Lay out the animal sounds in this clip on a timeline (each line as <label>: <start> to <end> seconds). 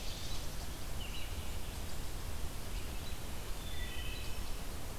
Ovenbird (Seiurus aurocapilla): 0.0 to 0.7 seconds
Red-eyed Vireo (Vireo olivaceus): 0.0 to 3.1 seconds
Wood Thrush (Hylocichla mustelina): 3.1 to 5.0 seconds